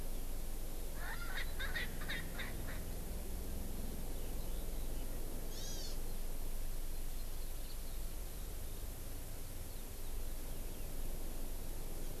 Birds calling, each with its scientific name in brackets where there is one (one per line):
Hawaii Amakihi (Chlorodrepanis virens)
Erckel's Francolin (Pternistis erckelii)